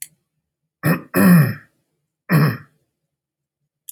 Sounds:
Throat clearing